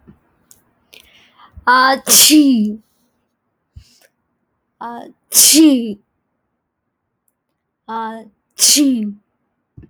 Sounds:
Sneeze